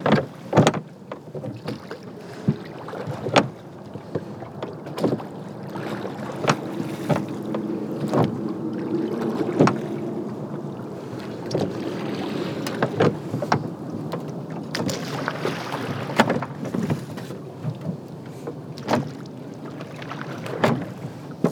Is there a motor?
no